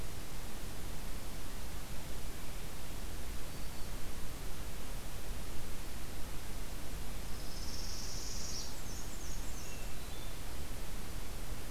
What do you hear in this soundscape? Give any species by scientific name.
Setophaga americana, Mniotilta varia, Catharus guttatus